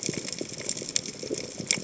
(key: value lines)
label: biophony, chatter
recorder: HydroMoth